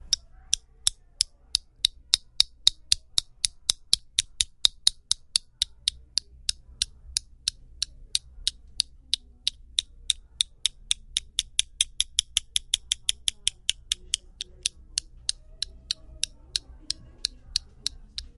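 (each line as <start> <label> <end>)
0.0 A mechanical ticking sound with a rhythm that speeds up and slows down. 18.4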